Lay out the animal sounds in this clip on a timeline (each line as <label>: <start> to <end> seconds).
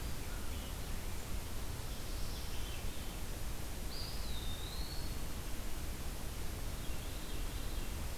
Veery (Catharus fuscescens): 2.0 to 3.2 seconds
Eastern Wood-Pewee (Contopus virens): 3.7 to 5.3 seconds
Veery (Catharus fuscescens): 6.6 to 8.2 seconds